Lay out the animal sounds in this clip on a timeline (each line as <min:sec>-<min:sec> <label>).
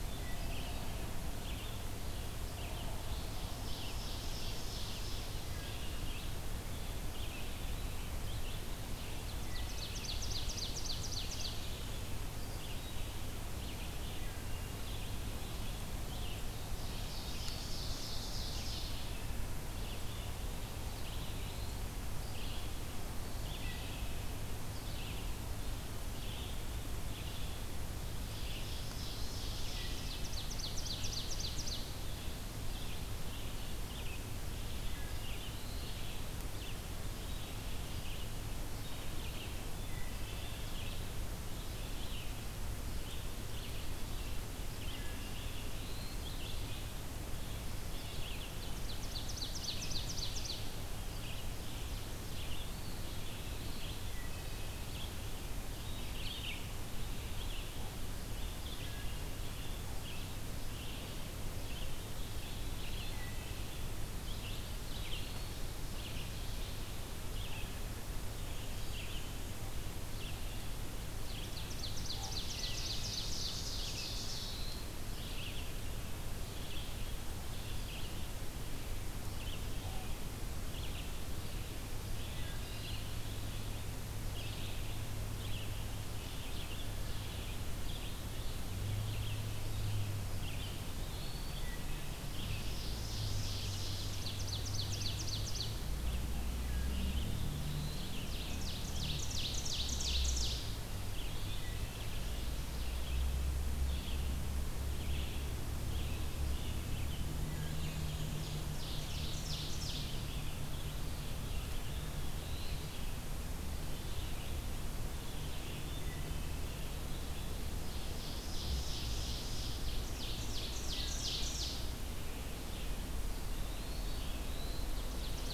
0:00.0-2:05.5 Red-eyed Vireo (Vireo olivaceus)
0:00.1-0:00.6 Wood Thrush (Hylocichla mustelina)
0:02.9-0:05.6 Ovenbird (Seiurus aurocapilla)
0:05.3-0:06.0 Wood Thrush (Hylocichla mustelina)
0:08.8-0:11.7 Ovenbird (Seiurus aurocapilla)
0:09.4-0:10.0 Wood Thrush (Hylocichla mustelina)
0:14.1-0:14.9 Wood Thrush (Hylocichla mustelina)
0:16.3-0:19.2 Ovenbird (Seiurus aurocapilla)
0:20.8-0:21.9 Eastern Wood-Pewee (Contopus virens)
0:28.1-0:32.1 Ovenbird (Seiurus aurocapilla)
0:29.5-0:30.2 Wood Thrush (Hylocichla mustelina)
0:34.7-0:35.3 Wood Thrush (Hylocichla mustelina)
0:34.8-0:36.0 Eastern Wood-Pewee (Contopus virens)
0:39.6-0:40.4 Wood Thrush (Hylocichla mustelina)
0:44.7-0:45.3 Wood Thrush (Hylocichla mustelina)
0:45.1-0:46.3 Eastern Wood-Pewee (Contopus virens)
0:48.3-0:50.8 Ovenbird (Seiurus aurocapilla)
0:52.7-0:53.8 Eastern Wood-Pewee (Contopus virens)
0:54.0-0:54.7 Wood Thrush (Hylocichla mustelina)
0:58.7-0:59.4 Wood Thrush (Hylocichla mustelina)
1:02.3-1:03.4 Eastern Wood-Pewee (Contopus virens)
1:03.0-1:03.4 Wood Thrush (Hylocichla mustelina)
1:04.4-1:05.7 Eastern Wood-Pewee (Contopus virens)
1:05.5-1:06.7 Ovenbird (Seiurus aurocapilla)
1:11.2-1:14.9 Ovenbird (Seiurus aurocapilla)
1:12.0-1:12.5 Common Raven (Corvus corax)
1:14.0-1:14.9 Eastern Wood-Pewee (Contopus virens)
1:19.7-1:20.1 Common Raven (Corvus corax)
1:22.3-1:22.8 Wood Thrush (Hylocichla mustelina)
1:30.4-1:31.8 Eastern Wood-Pewee (Contopus virens)
1:31.4-1:32.1 Wood Thrush (Hylocichla mustelina)
1:32.2-1:35.8 Ovenbird (Seiurus aurocapilla)
1:38.0-1:40.8 Ovenbird (Seiurus aurocapilla)
1:41.2-1:42.9 Ovenbird (Seiurus aurocapilla)
1:47.3-1:47.9 Wood Thrush (Hylocichla mustelina)
1:47.4-1:48.8 Black-and-white Warbler (Mniotilta varia)
1:47.7-1:50.5 Ovenbird (Seiurus aurocapilla)
1:51.8-1:52.8 Black-throated Blue Warbler (Setophaga caerulescens)
1:55.7-1:56.6 Wood Thrush (Hylocichla mustelina)
1:57.6-2:01.9 Ovenbird (Seiurus aurocapilla)
2:03.3-2:04.4 Eastern Wood-Pewee (Contopus virens)
2:04.1-2:04.9 Black-throated Blue Warbler (Setophaga caerulescens)
2:04.5-2:05.5 Ovenbird (Seiurus aurocapilla)